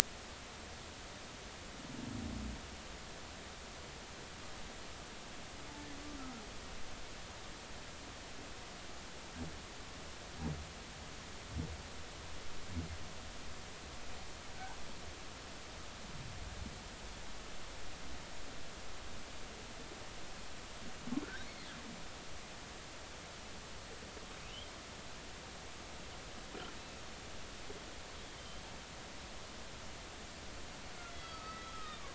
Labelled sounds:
14.5	14.8	humpback whale, 1.4 to 1.7 kHz
24.4	24.7	humpback whale, 2.5 to 3.5 kHz
26.8	27.0	humpback whale, 2.5 to 2.7 kHz
28.4	28.6	humpback whale, 3.0 to 3.2 kHz
31.1	32.1	humpback whale, 1.1 to 4.7 kHz

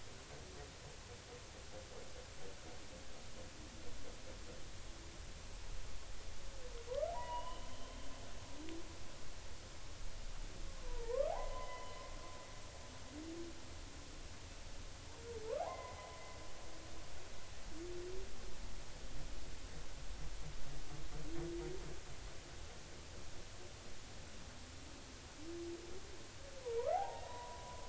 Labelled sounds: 7.1	8.0	humpback whale, 0.80 to 3.2 kHz
10.9	12.0	humpback whale, 0.80 to 3.2 kHz
15.6	16.0	humpback whale, 0.80 to 2.1 kHz
26.6	27.8	humpback whale, 0.80 to 1.9 kHz

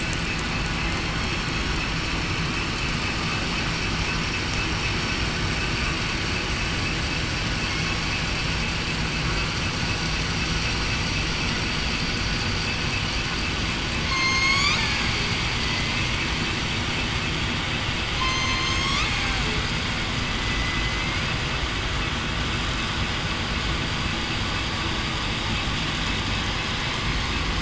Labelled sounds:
14.1	14.7	killer whale, southern resident, 4.2 to 7.1 kHz
15.6	16.0	killer whale, southern resident, 2.0 to 2.1 kHz
18.2	18.9	killer whale, southern resident, 2.0 to 8.0 kHz
20.6	21.2	killer whale, southern resident, 1.9 to 2.2 kHz

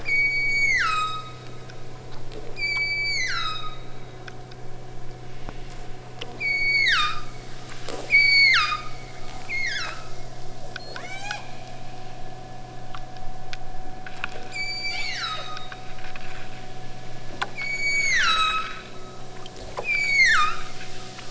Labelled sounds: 0.0	1.4	killer whale, southern Alaska resident, 0.85 to 8.0 kHz
2.5	4.3	killer whale, southern Alaska resident, 0.85 to 8.0 kHz
6.3	7.3	killer whale, southern Alaska resident, 0.88 to 8.0 kHz
7.8	8.9	killer whale, southern Alaska resident, 0.95 to 8.0 kHz
9.3	10.2	killer whale, southern Alaska resident, 0.68 to 8.0 kHz
10.8	11.5	killer whale, southern Alaska resident, 0.41 to 8.0 kHz
14.5	15.8	killer whale, southern Alaska resident, 0.71 to 8.0 kHz
17.6	18.8	killer whale, southern Alaska resident, 0.88 to 8.0 kHz
19.7	20.8	killer whale, southern Alaska resident, 0.85 to 8.0 kHz

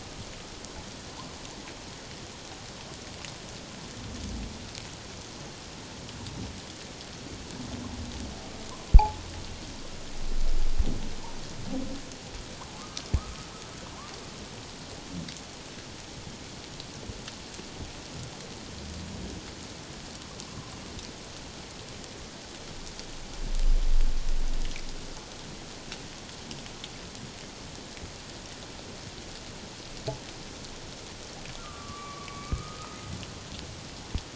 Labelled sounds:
13.2	13.5	humpback whale, 1.1 to 1.4 kHz
31.6	33.0	humpback whale, 1.1 to 2.3 kHz

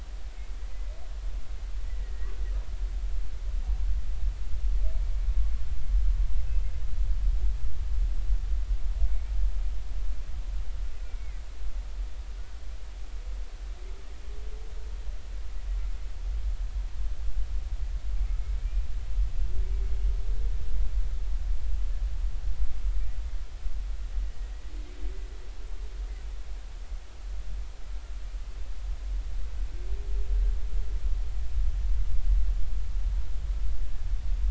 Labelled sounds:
2.0	2.3	humpback whale, 1.8 to 2.0 kHz
6.5	6.7	humpback whale, 2.5 to 2.7 kHz
11.0	11.4	humpback whale, 1.9 to 2.4 kHz

